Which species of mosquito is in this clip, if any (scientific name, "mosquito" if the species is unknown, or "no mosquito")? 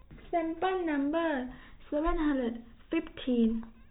no mosquito